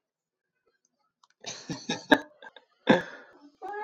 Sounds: Laughter